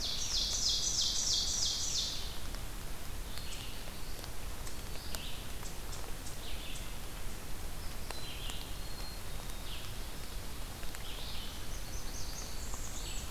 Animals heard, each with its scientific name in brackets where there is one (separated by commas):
Red-eyed Vireo (Vireo olivaceus), Blackburnian Warbler (Setophaga fusca), Black-capped Chickadee (Poecile atricapillus), Ovenbird (Seiurus aurocapilla)